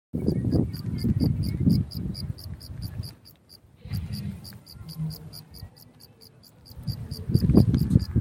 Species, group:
Gryllus lineaticeps
Orthoptera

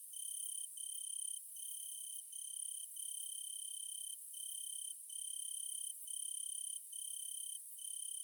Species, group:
Phaneroptera nana
Orthoptera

